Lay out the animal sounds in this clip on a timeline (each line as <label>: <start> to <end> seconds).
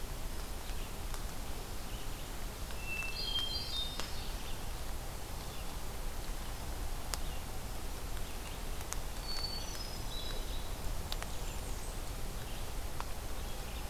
Hermit Thrush (Catharus guttatus): 2.6 to 4.4 seconds
Red-eyed Vireo (Vireo olivaceus): 5.2 to 5.8 seconds
Hermit Thrush (Catharus guttatus): 9.1 to 10.8 seconds
Bay-breasted Warbler (Setophaga castanea): 10.7 to 12.1 seconds